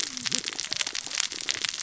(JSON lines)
{"label": "biophony, cascading saw", "recorder": "SoundTrap 600 or HydroMoth"}